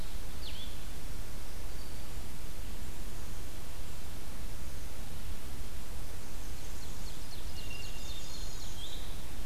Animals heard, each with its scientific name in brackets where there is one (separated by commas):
Ovenbird (Seiurus aurocapilla), Blue-headed Vireo (Vireo solitarius)